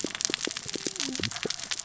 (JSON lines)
{"label": "biophony, cascading saw", "recorder": "SoundTrap 600 or HydroMoth"}